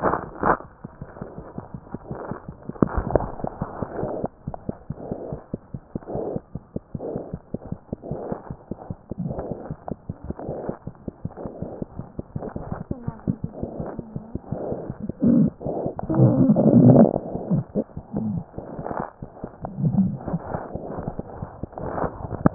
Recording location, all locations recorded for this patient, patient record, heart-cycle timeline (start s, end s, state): mitral valve (MV)
aortic valve (AV)+mitral valve (MV)
#Age: Infant
#Sex: Male
#Height: 54.0 cm
#Weight: 5.4 kg
#Pregnancy status: False
#Murmur: Unknown
#Murmur locations: nan
#Most audible location: nan
#Systolic murmur timing: nan
#Systolic murmur shape: nan
#Systolic murmur grading: nan
#Systolic murmur pitch: nan
#Systolic murmur quality: nan
#Diastolic murmur timing: nan
#Diastolic murmur shape: nan
#Diastolic murmur grading: nan
#Diastolic murmur pitch: nan
#Diastolic murmur quality: nan
#Outcome: Abnormal
#Campaign: 2015 screening campaign
0.00	0.83	unannotated
0.83	0.87	S1
0.87	1.00	systole
1.00	1.04	S2
1.04	1.20	diastole
1.20	1.25	S1
1.25	1.37	systole
1.37	1.41	S2
1.41	1.57	diastole
1.57	1.60	S1
1.60	1.73	systole
1.73	1.77	S2
1.77	1.93	diastole
1.93	1.96	S1
1.96	2.09	systole
2.09	2.14	S2
2.14	2.30	diastole
2.30	2.33	S1
2.33	2.48	systole
2.48	2.51	S2
2.51	2.68	diastole
2.68	2.71	S1
2.71	2.85	systole
2.85	2.89	S2
2.89	4.88	unannotated
4.88	4.94	S1
4.94	5.10	systole
5.10	5.14	S2
5.14	5.31	diastole
5.31	5.36	S1
5.36	5.52	systole
5.52	5.57	S2
5.57	5.72	diastole
5.72	5.79	S1
5.79	22.54	unannotated